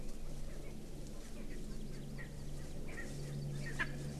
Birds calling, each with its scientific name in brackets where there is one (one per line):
Erckel's Francolin (Pternistis erckelii)
Hawaii Amakihi (Chlorodrepanis virens)